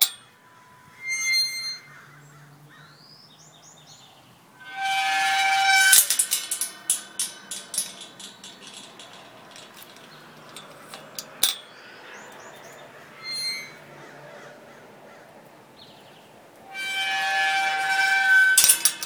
Is the gate creaking?
yes